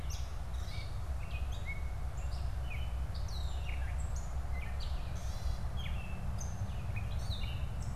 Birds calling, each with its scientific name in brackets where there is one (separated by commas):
Gray Catbird (Dumetella carolinensis), Red-eyed Vireo (Vireo olivaceus)